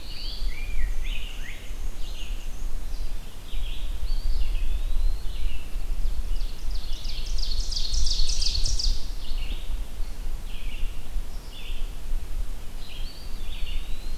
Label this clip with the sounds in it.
Rose-breasted Grosbeak, Red-eyed Vireo, Black-and-white Warbler, Eastern Wood-Pewee, Ovenbird